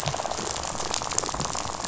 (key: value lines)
label: biophony, rattle
recorder: SoundTrap 500